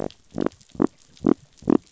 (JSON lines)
{"label": "biophony", "recorder": "SoundTrap 500"}